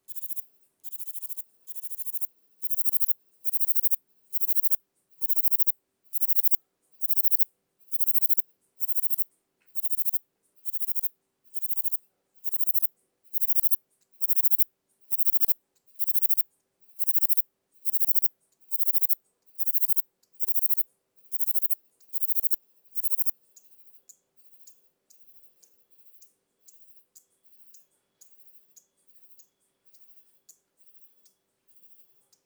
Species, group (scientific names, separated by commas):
Platycleis intermedia, Orthoptera